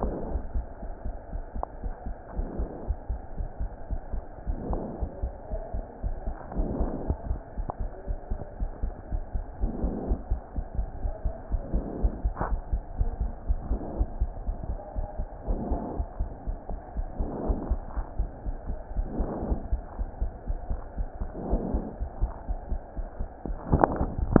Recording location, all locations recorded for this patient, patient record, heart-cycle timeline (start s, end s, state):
pulmonary valve (PV)
aortic valve (AV)+pulmonary valve (PV)+tricuspid valve (TV)+mitral valve (MV)
#Age: Adolescent
#Sex: Female
#Height: 119.0 cm
#Weight: 19.6 kg
#Pregnancy status: False
#Murmur: Absent
#Murmur locations: nan
#Most audible location: nan
#Systolic murmur timing: nan
#Systolic murmur shape: nan
#Systolic murmur grading: nan
#Systolic murmur pitch: nan
#Systolic murmur quality: nan
#Diastolic murmur timing: nan
#Diastolic murmur shape: nan
#Diastolic murmur grading: nan
#Diastolic murmur pitch: nan
#Diastolic murmur quality: nan
#Outcome: Normal
#Campaign: 2015 screening campaign
0.00	1.64	unannotated
1.64	1.82	diastole
1.82	1.92	S1
1.92	2.06	systole
2.06	2.16	S2
2.16	2.36	diastole
2.36	2.48	S1
2.48	2.58	systole
2.58	2.70	S2
2.70	2.86	diastole
2.86	2.98	S1
2.98	3.08	systole
3.08	3.20	S2
3.20	3.36	diastole
3.36	3.50	S1
3.50	3.60	systole
3.60	3.72	S2
3.72	3.90	diastole
3.90	4.02	S1
4.02	4.12	systole
4.12	4.24	S2
4.24	4.46	diastole
4.46	4.60	S1
4.60	4.68	systole
4.68	4.82	S2
4.82	5.00	diastole
5.00	5.10	S1
5.10	5.20	systole
5.20	5.34	S2
5.34	5.52	diastole
5.52	5.64	S1
5.64	5.74	systole
5.74	5.86	S2
5.86	6.04	diastole
6.04	6.16	S1
6.16	6.24	systole
6.24	6.36	S2
6.36	6.56	diastole
6.56	6.72	S1
6.72	6.80	systole
6.80	6.92	S2
6.92	7.06	diastole
7.06	7.18	S1
7.18	7.26	systole
7.26	7.40	S2
7.40	7.58	diastole
7.58	7.66	S1
7.66	7.80	systole
7.80	7.92	S2
7.92	8.08	diastole
8.08	8.18	S1
8.18	8.30	systole
8.30	8.40	S2
8.40	8.58	diastole
8.58	8.72	S1
8.72	8.80	systole
8.80	8.94	S2
8.94	9.12	diastole
9.12	9.24	S1
9.24	9.34	systole
9.34	9.46	S2
9.46	9.60	diastole
9.60	9.74	S1
9.74	9.80	systole
9.80	9.94	S2
9.94	10.08	diastole
10.08	10.20	S1
10.20	10.28	systole
10.28	10.42	S2
10.42	10.56	diastole
10.56	10.66	S1
10.66	10.78	systole
10.78	10.88	S2
10.88	11.02	diastole
11.02	11.14	S1
11.14	11.24	systole
11.24	11.34	S2
11.34	11.52	diastole
11.52	11.64	S1
11.64	11.72	systole
11.72	11.86	S2
11.86	12.00	diastole
12.00	12.14	S1
12.14	12.22	systole
12.22	12.34	S2
12.34	12.50	diastole
12.50	12.62	S1
12.62	12.70	systole
12.70	12.84	S2
12.84	12.98	diastole
12.98	13.14	S1
13.14	13.18	systole
13.18	13.32	S2
13.32	13.48	diastole
13.48	13.62	S1
13.62	13.68	systole
13.68	13.82	S2
13.82	13.98	diastole
13.98	14.12	S1
14.12	14.18	systole
14.18	14.32	S2
14.32	14.46	diastole
14.46	14.56	S1
14.56	14.68	systole
14.68	14.80	S2
14.80	14.98	diastole
14.98	15.08	S1
15.08	15.18	systole
15.18	15.28	S2
15.28	15.48	diastole
15.48	15.62	S1
15.62	15.70	systole
15.70	15.82	S2
15.82	15.96	diastole
15.96	16.08	S1
16.08	16.20	systole
16.20	16.32	S2
16.32	16.48	diastole
16.48	16.58	S1
16.58	16.70	systole
16.70	16.80	S2
16.80	16.96	diastole
16.96	17.08	S1
17.08	17.20	systole
17.20	17.30	S2
17.30	17.46	diastole
17.46	17.60	S1
17.60	17.68	systole
17.68	17.82	S2
17.82	17.96	diastole
17.96	18.06	S1
18.06	18.18	systole
18.18	18.30	S2
18.30	18.46	diastole
18.46	18.56	S1
18.56	18.68	systole
18.68	18.80	S2
18.80	18.98	diastole
18.98	19.10	S1
19.10	19.18	systole
19.18	19.28	S2
19.28	19.44	diastole
19.44	19.60	S1
19.60	19.70	systole
19.70	19.82	S2
19.82	19.98	diastole
19.98	20.08	S1
20.08	20.20	systole
20.20	20.32	S2
20.32	20.48	diastole
20.48	20.60	S1
20.60	20.68	systole
20.68	20.82	S2
20.82	20.98	diastole
20.98	21.08	S1
21.08	21.20	systole
21.20	21.30	S2
21.30	21.46	diastole
21.46	21.62	S1
21.62	21.74	systole
21.74	21.86	S2
21.86	22.00	diastole
22.00	22.10	S1
22.10	22.20	systole
22.20	22.32	S2
22.32	22.48	diastole
22.48	22.60	S1
22.60	22.70	systole
22.70	22.80	S2
22.80	22.98	diastole
22.98	23.08	S1
23.08	23.18	systole
23.18	23.28	S2
23.28	23.46	diastole
23.46	24.40	unannotated